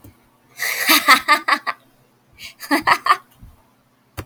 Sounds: Laughter